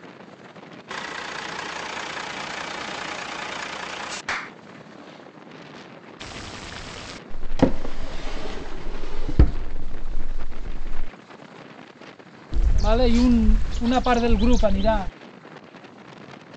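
At 0.9 seconds, you can hear an engine. Then, at 4.27 seconds, someone claps. After that, at 6.19 seconds, there is cooking. Afterwards, at 7.3 seconds, a drawer opens or closes. Later, at 12.51 seconds, a loud bird vocalization can be heard.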